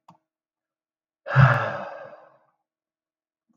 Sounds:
Sigh